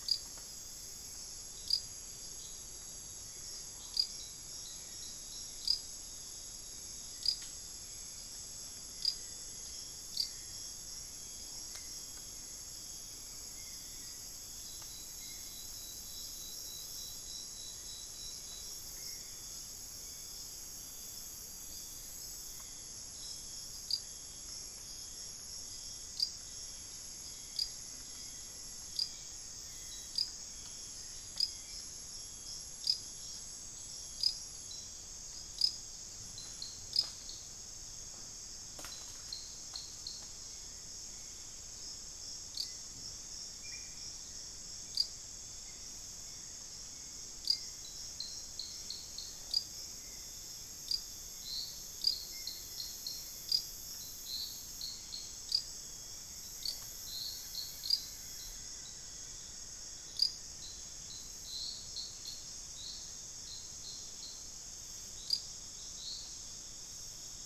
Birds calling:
Rufous-fronted Antthrush (Formicarius rufifrons), Blue-crowned Trogon (Trogon curucui), Amazonian Motmot (Momotus momota), unidentified bird, Gilded Barbet (Capito auratus), Hauxwell's Thrush (Turdus hauxwelli)

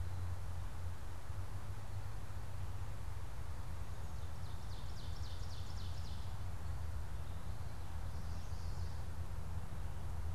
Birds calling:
Ovenbird (Seiurus aurocapilla), Chestnut-sided Warbler (Setophaga pensylvanica)

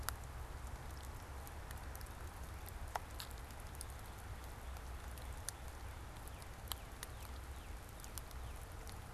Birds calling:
Northern Cardinal (Cardinalis cardinalis)

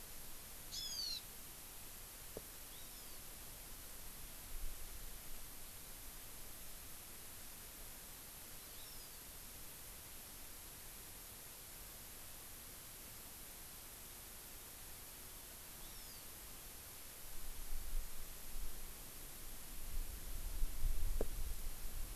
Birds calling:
Hawaiian Hawk (Buteo solitarius)

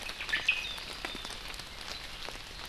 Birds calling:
Omao (Myadestes obscurus)

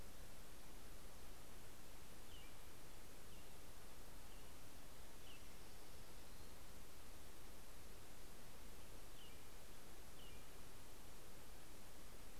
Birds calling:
American Robin (Turdus migratorius), Orange-crowned Warbler (Leiothlypis celata)

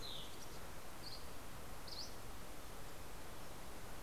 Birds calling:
Dusky Flycatcher (Empidonax oberholseri), Lincoln's Sparrow (Melospiza lincolnii)

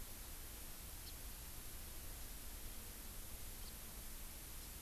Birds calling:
House Finch (Haemorhous mexicanus)

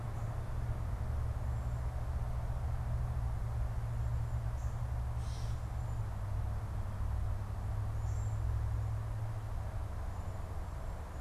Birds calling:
Cedar Waxwing (Bombycilla cedrorum), Gray Catbird (Dumetella carolinensis)

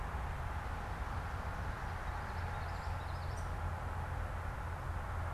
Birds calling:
Downy Woodpecker (Dryobates pubescens), Common Yellowthroat (Geothlypis trichas)

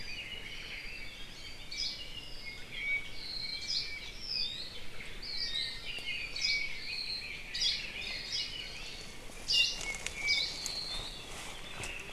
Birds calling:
Hawaii Akepa (Loxops coccineus), Hawaii Creeper (Loxops mana), Red-billed Leiothrix (Leiothrix lutea), Apapane (Himatione sanguinea)

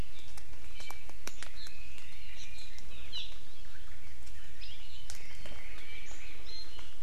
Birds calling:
Hawaii Amakihi (Chlorodrepanis virens), Chinese Hwamei (Garrulax canorus), Iiwi (Drepanis coccinea)

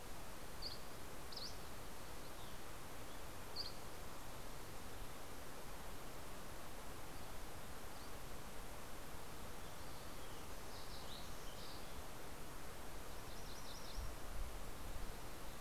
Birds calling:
MacGillivray's Warbler (Geothlypis tolmiei), Dusky Flycatcher (Empidonax oberholseri), Fox Sparrow (Passerella iliaca)

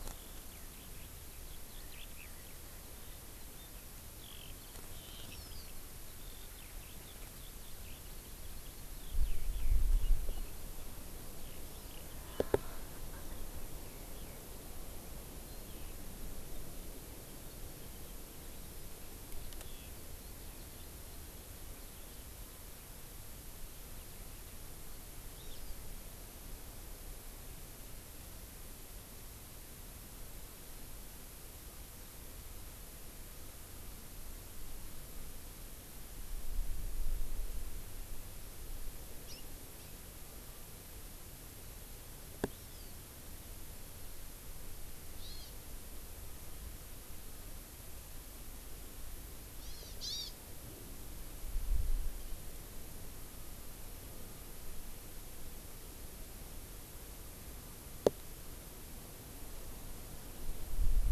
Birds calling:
Hawaii Amakihi (Chlorodrepanis virens), Eurasian Skylark (Alauda arvensis), Erckel's Francolin (Pternistis erckelii)

